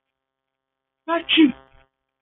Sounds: Sneeze